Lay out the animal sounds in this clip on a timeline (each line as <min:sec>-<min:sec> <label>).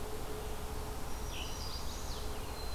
0:00.8-0:01.9 Black-throated Green Warbler (Setophaga virens)
0:01.2-0:01.7 Scarlet Tanager (Piranga olivacea)
0:01.5-0:02.4 Chestnut-sided Warbler (Setophaga pensylvanica)